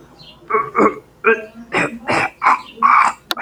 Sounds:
Throat clearing